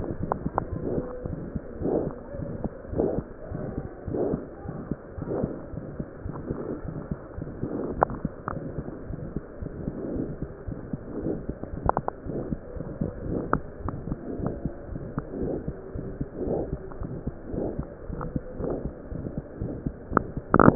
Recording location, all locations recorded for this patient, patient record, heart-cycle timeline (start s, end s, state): pulmonary valve (PV)
aortic valve (AV)+pulmonary valve (PV)+tricuspid valve (TV)+mitral valve (MV)
#Age: Infant
#Sex: Male
#Height: 72.0 cm
#Weight: 8.8 kg
#Pregnancy status: False
#Murmur: Present
#Murmur locations: aortic valve (AV)+mitral valve (MV)+pulmonary valve (PV)+tricuspid valve (TV)
#Most audible location: aortic valve (AV)
#Systolic murmur timing: Early-systolic
#Systolic murmur shape: Decrescendo
#Systolic murmur grading: II/VI
#Systolic murmur pitch: Low
#Systolic murmur quality: Blowing
#Diastolic murmur timing: nan
#Diastolic murmur shape: nan
#Diastolic murmur grading: nan
#Diastolic murmur pitch: nan
#Diastolic murmur quality: nan
#Outcome: Abnormal
#Campaign: 2015 screening campaign
0.00	13.69	unannotated
13.69	13.83	diastole
13.83	13.93	S1
13.93	14.10	systole
14.10	14.18	S2
14.18	14.40	diastole
14.40	14.52	S1
14.52	14.62	systole
14.62	14.70	S2
14.70	14.89	diastole
14.89	15.01	S1
15.01	15.13	systole
15.13	15.23	S2
15.23	15.38	diastole
15.38	15.47	S1
15.47	15.65	systole
15.65	15.74	S2
15.74	15.93	diastole
15.93	16.04	S1
16.04	16.18	systole
16.18	16.26	S2
16.26	16.42	diastole
16.42	16.55	S1
16.55	16.69	systole
16.69	16.80	S2
16.80	16.98	diastole
16.98	17.10	S1
17.10	17.24	systole
17.24	17.36	S2
17.36	17.51	diastole
17.51	17.61	S1
17.61	17.76	systole
17.76	17.86	S2
17.86	18.07	diastole
18.07	18.15	S1
18.15	18.31	systole
18.31	18.44	S2
18.44	18.58	diastole
18.58	18.72	S1
18.72	18.83	systole
18.83	18.92	S2
18.92	19.10	diastole
19.10	19.22	S1
19.22	19.34	systole
19.34	19.42	S2
19.42	19.59	diastole
19.59	19.72	S1
19.72	19.84	systole
19.84	19.94	S2
19.94	20.10	diastole
20.10	20.75	unannotated